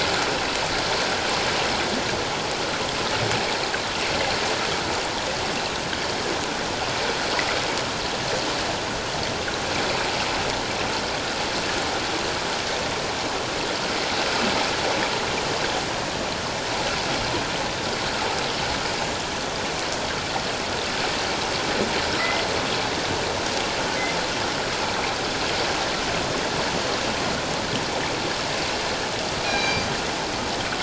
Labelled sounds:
22.2	22.4	killer whale, northern resident, G clan, 1.9 to 2.1 kHz
29.4	29.9	killer whale, northern resident, G clan, 2.3 to 4.8 kHz

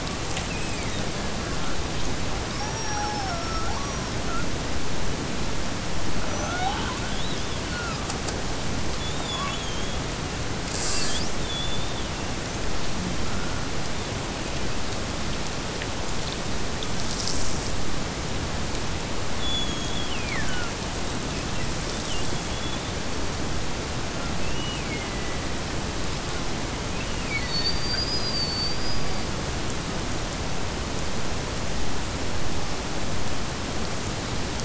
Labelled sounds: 0.4	1.6	killer whale, Bigg's (transient), Gulf of Alaska transient, 1.5 to 5.4 kHz
19.2	20.8	killer whale, Bigg's (transient), Gulf of Alaska transient, 1.2 to 7.0 kHz
24.3	25.8	killer whale, Bigg's (transient), Gulf of Alaska transient, 1.6 to 3.1 kHz
26.8	28.0	killer whale, Bigg's (transient), Gulf of Alaska transient, 1.3 to 3.1 kHz

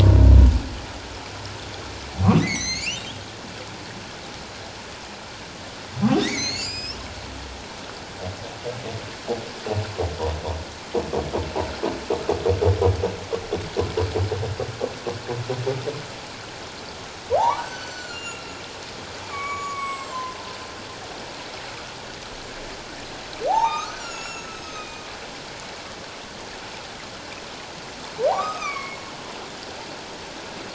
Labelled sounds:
2.4	3.1	humpback whale, 1.8 to 7.3 kHz
6.0	7.0	humpback whale, 0.97 to 7.9 kHz
17.3	20.4	humpback whale, 0.78 to 7.8 kHz
23.5	25.0	humpback whale, 0.78 to 8.0 kHz
28.3	29.0	humpback whale, 0.78 to 2.6 kHz

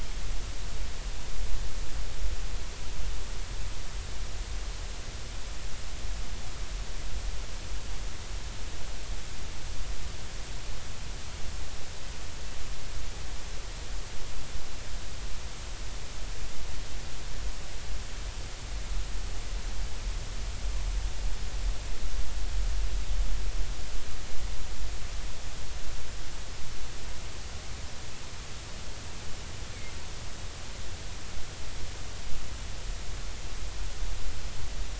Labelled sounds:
29.7	30.0	killer whale, 2.0 to 2.3 kHz

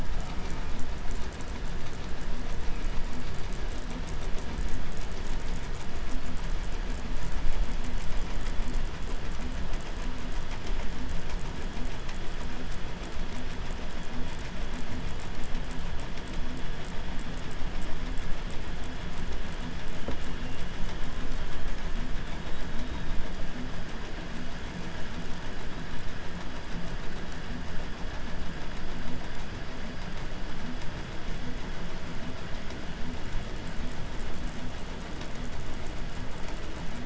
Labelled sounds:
0.0	1.2	killer whale, southern resident, J pod, call S04, 0.46 to 2.9 kHz
19.6	21.1	killer whale, 2.4 to 3.7 kHz
21.9	23.3	killer whale, 3.1 to 8.0 kHz

